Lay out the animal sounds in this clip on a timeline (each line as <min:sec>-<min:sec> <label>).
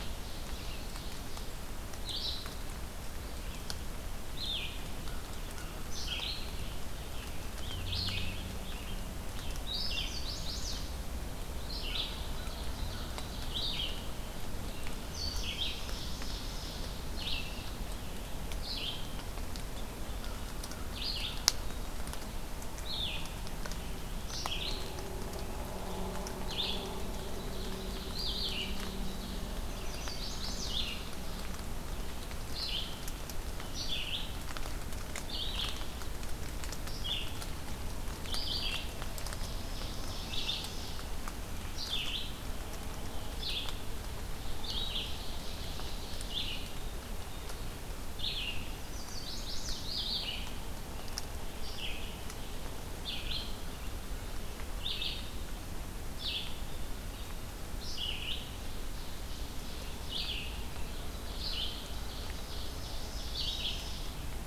0:00.0-0:00.8 Rose-breasted Grosbeak (Pheucticus ludovicianus)
0:00.0-0:01.6 Ovenbird (Seiurus aurocapilla)
0:00.0-0:26.0 Red-eyed Vireo (Vireo olivaceus)
0:04.9-0:06.4 American Crow (Corvus brachyrhynchos)
0:06.3-0:10.1 Rose-breasted Grosbeak (Pheucticus ludovicianus)
0:09.6-0:11.2 Chestnut-sided Warbler (Setophaga pensylvanica)
0:11.8-0:13.5 American Crow (Corvus brachyrhynchos)
0:12.0-0:13.6 Ovenbird (Seiurus aurocapilla)
0:15.4-0:17.1 Ovenbird (Seiurus aurocapilla)
0:20.1-0:21.4 American Crow (Corvus brachyrhynchos)
0:21.5-0:22.4 Black-capped Chickadee (Poecile atricapillus)
0:26.4-1:04.5 Red-eyed Vireo (Vireo olivaceus)
0:27.0-0:29.4 Ovenbird (Seiurus aurocapilla)
0:29.5-0:30.8 Chestnut-sided Warbler (Setophaga pensylvanica)
0:39.2-0:41.1 Ovenbird (Seiurus aurocapilla)
0:44.8-0:46.7 Ovenbird (Seiurus aurocapilla)
0:48.6-0:50.0 Chestnut-sided Warbler (Setophaga pensylvanica)
0:58.4-1:00.3 Ovenbird (Seiurus aurocapilla)
1:01.8-1:04.2 Ovenbird (Seiurus aurocapilla)